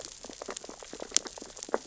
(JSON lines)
{"label": "biophony, sea urchins (Echinidae)", "recorder": "SoundTrap 600 or HydroMoth"}